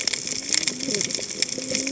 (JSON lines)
{"label": "biophony, cascading saw", "recorder": "HydroMoth"}